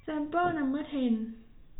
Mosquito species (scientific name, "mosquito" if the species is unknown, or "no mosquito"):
no mosquito